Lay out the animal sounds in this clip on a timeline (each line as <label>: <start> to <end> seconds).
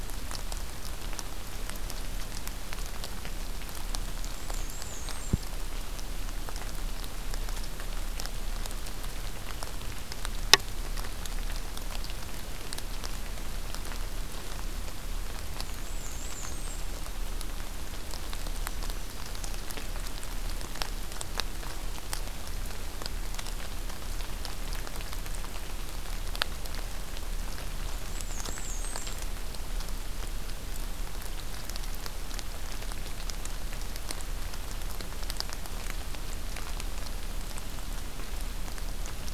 Black-and-white Warbler (Mniotilta varia): 4.1 to 5.6 seconds
Black-and-white Warbler (Mniotilta varia): 15.4 to 16.9 seconds
Black-throated Green Warbler (Setophaga virens): 18.5 to 19.4 seconds
Black-and-white Warbler (Mniotilta varia): 28.0 to 29.3 seconds